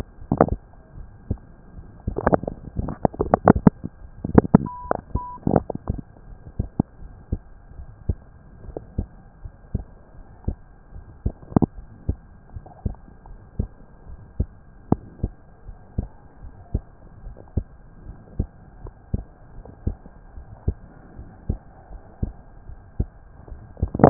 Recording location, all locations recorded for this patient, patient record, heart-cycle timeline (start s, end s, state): pulmonary valve (PV)
aortic valve (AV)+pulmonary valve (PV)+tricuspid valve (TV)+mitral valve (MV)
#Age: Adolescent
#Sex: Male
#Height: 144.0 cm
#Weight: 41.3 kg
#Pregnancy status: False
#Murmur: Present
#Murmur locations: tricuspid valve (TV)
#Most audible location: tricuspid valve (TV)
#Systolic murmur timing: Early-systolic
#Systolic murmur shape: Plateau
#Systolic murmur grading: I/VI
#Systolic murmur pitch: Low
#Systolic murmur quality: Harsh
#Diastolic murmur timing: nan
#Diastolic murmur shape: nan
#Diastolic murmur grading: nan
#Diastolic murmur pitch: nan
#Diastolic murmur quality: nan
#Outcome: Abnormal
#Campaign: 2015 screening campaign
0.00	8.59	unannotated
8.59	8.78	S1
8.78	8.94	systole
8.94	9.10	S2
9.10	9.42	diastole
9.42	9.54	S1
9.54	9.73	systole
9.73	9.86	S2
9.86	10.15	diastole
10.15	10.26	S1
10.26	10.44	systole
10.44	10.58	S2
10.58	10.91	diastole
10.91	11.04	S1
11.04	11.23	systole
11.23	11.34	S2
11.34	11.74	diastole
11.74	11.86	S1
11.86	12.06	systole
12.06	12.18	S2
12.18	12.53	diastole
12.53	12.63	S1
12.63	12.83	systole
12.83	12.95	S2
12.95	13.26	diastole
13.26	13.39	S1
13.39	13.57	systole
13.57	13.68	S2
13.68	14.04	diastole
14.04	14.19	S1
14.19	14.36	systole
14.36	14.50	S2
14.50	14.90	diastole
14.90	15.04	S1
15.04	15.20	systole
15.20	15.34	S2
15.34	15.65	diastole
15.65	15.76	S1
15.76	15.95	systole
15.95	16.09	S2
16.09	16.40	diastole
16.40	16.52	S1
16.52	16.70	systole
16.70	16.82	S2
16.82	17.24	diastole
17.24	17.38	S1
17.38	17.50	systole
17.50	17.64	S2
17.64	18.04	diastole
18.04	18.16	S1
18.16	18.34	systole
18.34	18.48	S2
18.48	18.82	diastole
18.82	18.94	S1
18.94	19.10	systole
19.10	19.24	S2
19.24	19.55	diastole
19.55	19.66	S1
19.66	19.84	systole
19.84	19.98	S2
19.98	20.33	diastole
20.33	20.48	S1
20.48	20.64	systole
20.64	20.78	S2
20.78	21.15	diastole
21.15	21.27	S1
21.27	21.46	systole
21.46	21.60	S2
21.60	21.88	diastole
21.88	22.00	S1
22.00	22.20	systole
22.20	22.33	S2
22.33	22.66	diastole
22.66	22.81	S1
22.81	22.97	systole
22.97	23.09	S2
23.09	23.49	diastole
23.49	23.58	S1
23.58	24.10	unannotated